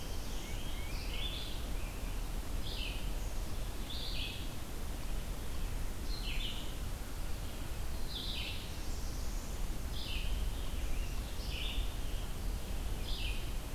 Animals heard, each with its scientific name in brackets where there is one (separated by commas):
Tufted Titmouse (Baeolophus bicolor), Red-eyed Vireo (Vireo olivaceus), Black-throated Blue Warbler (Setophaga caerulescens), American Robin (Turdus migratorius)